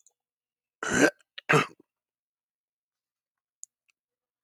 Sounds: Throat clearing